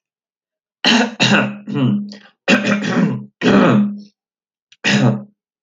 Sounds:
Throat clearing